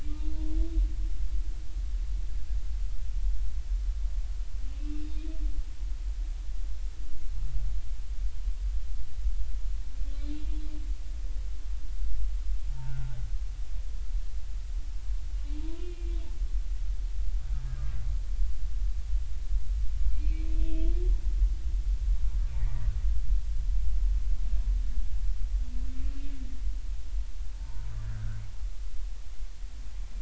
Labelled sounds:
4.8	5.1	humpback whale, 2.6 to 2.8 kHz
10.2	10.7	humpback whale, 3.3 to 3.7 kHz
12.8	13.2	humpback whale, 1.3 to 1.6 kHz
15.6	16.2	humpback whale, 0.90 to 2.9 kHz
20.0	21.0	humpback whale, 2.2 to 3.4 kHz
22.5	22.9	humpback whale, 1.8 to 2.4 kHz
27.5	28.4	humpback whale, 0.83 to 1.8 kHz

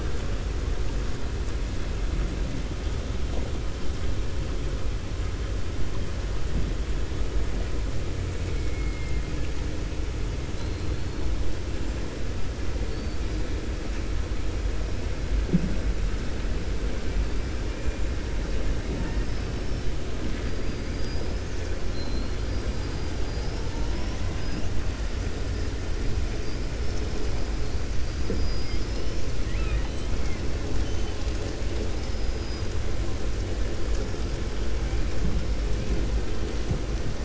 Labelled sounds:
8.4	9.2	killer whale, 1.3 to 2.6 kHz
28.0	30.1	killer whale, 0.88 to 6.7 kHz
30.7	31.3	killer whale, 2.7 to 4.1 kHz
31.9	32.7	killer whale, 4.5 to 5.8 kHz

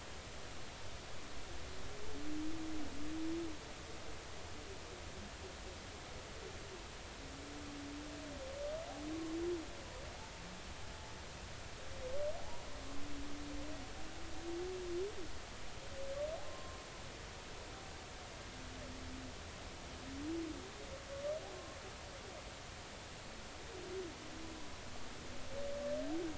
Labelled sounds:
12.4	12.7	humpback whale, 0.80 to 1.1 kHz
16.4	16.8	humpback whale, 1.0 to 1.1 kHz

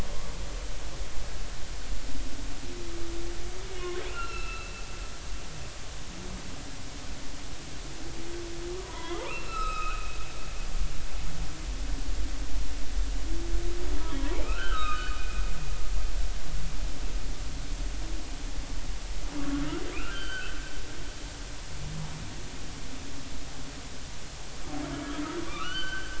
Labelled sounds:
3.7	4.7	humpback whale, 1.3 to 4.2 kHz
8.8	10.2	humpback whale, 0.93 to 7.8 kHz
14.2	15.1	humpback whale, 0.83 to 3.9 kHz
19.9	20.6	humpback whale, 1.3 to 4.7 kHz
25.5	26.1	humpback whale, 1.1 to 4.7 kHz

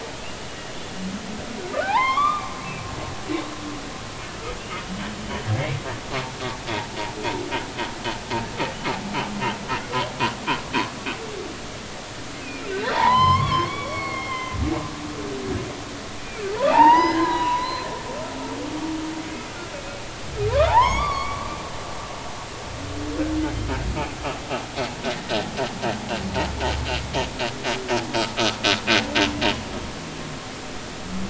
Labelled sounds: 1.8	2.9	humpback whale, 0.80 to 3.7 kHz
12.7	14.6	humpback whale, 0.80 to 4.5 kHz
16.6	17.9	humpback whale, 0.80 to 5.2 kHz
20.5	21.5	humpback whale, 0.80 to 5.7 kHz
25.1	25.4	humpback whale, 1.8 to 2.0 kHz

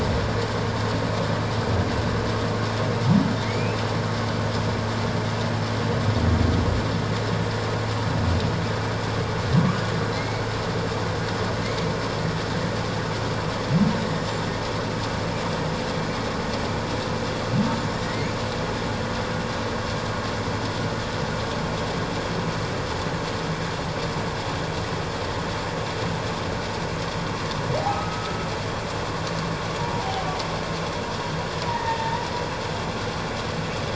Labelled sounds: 3.4	3.8	humpback whale, 2.0 to 2.7 kHz
10.1	10.4	humpback whale, 1.9 to 2.3 kHz
14.1	14.5	humpback whale, 7.1 to 7.4 kHz
18.0	18.3	humpback whale, 1.8 to 2.3 kHz
27.8	28.4	humpback whale, 0.78 to 1.4 kHz
31.7	32.2	humpback whale, 0.84 to 1.9 kHz

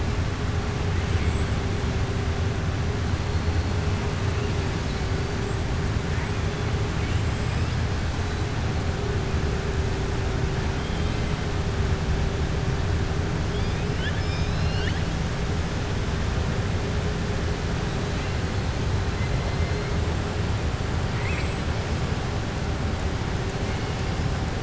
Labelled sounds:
10.7	11.2	killer whale, southern resident, 2.5 to 4.1 kHz
13.9	15.0	killer whale, southern resident, 1.5 to 5.6 kHz
21.1	21.5	killer whale, southern resident, 1.2 to 5.3 kHz

